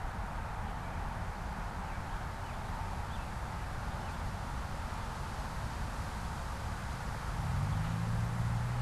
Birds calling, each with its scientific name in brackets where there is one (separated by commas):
American Robin (Turdus migratorius)